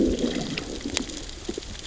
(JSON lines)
{"label": "biophony, growl", "recorder": "SoundTrap 600 or HydroMoth"}